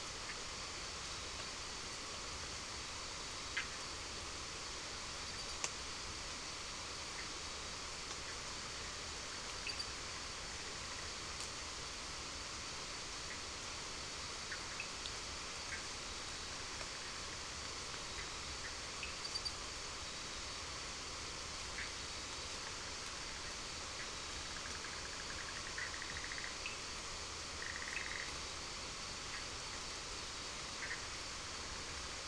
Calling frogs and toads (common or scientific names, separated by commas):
Bischoff's tree frog, Cochran's lime tree frog